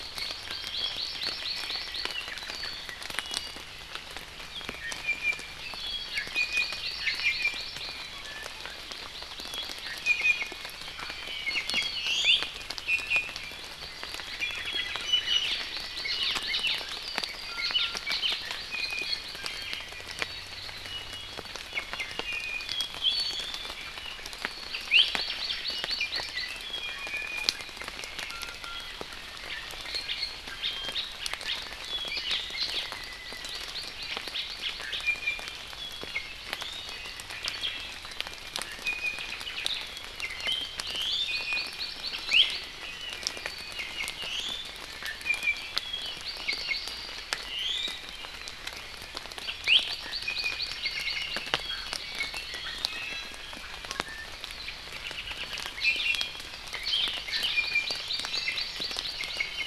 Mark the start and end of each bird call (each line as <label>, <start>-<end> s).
Hawaii Amakihi (Chlorodrepanis virens), 0.3-2.2 s
Iiwi (Drepanis coccinea), 5.1-5.6 s
Hawaii Amakihi (Chlorodrepanis virens), 6.1-8.0 s
Iiwi (Drepanis coccinea), 6.4-7.0 s
Iiwi (Drepanis coccinea), 7.3-7.7 s
Iiwi (Drepanis coccinea), 8.2-8.8 s
Hawaii Amakihi (Chlorodrepanis virens), 8.7-10.0 s
Iiwi (Drepanis coccinea), 9.9-10.7 s
Iiwi (Drepanis coccinea), 11.2-12.6 s
Iiwi (Drepanis coccinea), 12.9-13.4 s
Iiwi (Drepanis coccinea), 15.1-15.5 s
Hawaii Elepaio (Chasiempis sandwichensis), 15.2-15.6 s
Hawaii Amakihi (Chlorodrepanis virens), 15.5-17.0 s
Hawaii Elepaio (Chasiempis sandwichensis), 16.1-16.8 s
Iiwi (Drepanis coccinea), 17.5-18.1 s
Hawaii Elepaio (Chasiempis sandwichensis), 17.6-18.4 s
Iiwi (Drepanis coccinea), 18.7-19.2 s
Iiwi (Drepanis coccinea), 20.9-23.6 s
Hawaii Amakihi (Chlorodrepanis virens), 24.7-26.6 s
Iiwi (Drepanis coccinea), 24.9-25.1 s
Iiwi (Drepanis coccinea), 26.5-27.8 s
Iiwi (Drepanis coccinea), 28.3-29.0 s
Hawaii Elepaio (Chasiempis sandwichensis), 32.1-32.9 s
Hawaii Amakihi (Chlorodrepanis virens), 33.0-35.2 s
Iiwi (Drepanis coccinea), 35.1-35.6 s
Iiwi (Drepanis coccinea), 36.6-36.9 s
Omao (Myadestes obscurus), 37.3-38.0 s
Iiwi (Drepanis coccinea), 38.8-39.4 s
Omao (Myadestes obscurus), 39.4-39.9 s
Iiwi (Drepanis coccinea), 40.2-40.6 s
Iiwi (Drepanis coccinea), 40.9-41.7 s
Hawaii Amakihi (Chlorodrepanis virens), 40.9-42.7 s
Iiwi (Drepanis coccinea), 42.3-42.6 s
Iiwi (Drepanis coccinea), 43.8-45.8 s
Hawaii Amakihi (Chlorodrepanis virens), 46.0-47.3 s
Iiwi (Drepanis coccinea), 46.5-46.8 s
Iiwi (Drepanis coccinea), 47.5-48.0 s
Hawaii Amakihi (Chlorodrepanis virens), 49.4-51.5 s
Iiwi (Drepanis coccinea), 49.5-53.6 s
Iiwi (Drepanis coccinea), 53.9-54.3 s
Iiwi (Drepanis coccinea), 55.8-56.6 s
Hawaii Elepaio (Chasiempis sandwichensis), 56.7-57.3 s
Iiwi (Drepanis coccinea), 57.3-58.0 s
Hawaii Amakihi (Chlorodrepanis virens), 57.7-59.7 s
Iiwi (Drepanis coccinea), 58.3-58.7 s